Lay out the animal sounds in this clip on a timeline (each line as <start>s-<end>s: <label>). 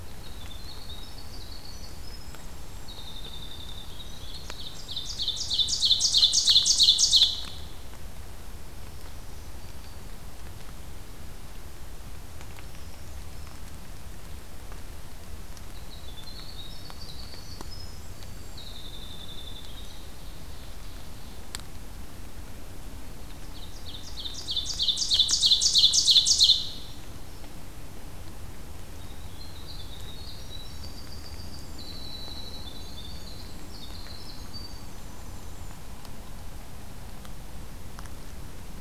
0.0s-5.1s: Winter Wren (Troglodytes hiemalis)
4.2s-7.5s: Ovenbird (Seiurus aurocapilla)
8.5s-10.1s: Black-throated Green Warbler (Setophaga virens)
12.3s-13.6s: Brown Creeper (Certhia americana)
15.7s-20.1s: Winter Wren (Troglodytes hiemalis)
19.7s-21.5s: Ovenbird (Seiurus aurocapilla)
23.5s-26.8s: Ovenbird (Seiurus aurocapilla)
26.3s-27.5s: Brown Creeper (Certhia americana)
28.9s-35.8s: Winter Wren (Troglodytes hiemalis)